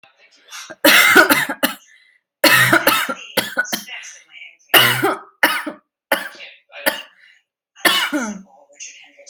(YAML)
expert_labels:
- quality: ok
  cough_type: dry
  dyspnea: false
  wheezing: false
  stridor: false
  choking: false
  congestion: false
  nothing: true
  diagnosis: COVID-19
  severity: mild
age: 22
gender: female
respiratory_condition: false
fever_muscle_pain: false
status: healthy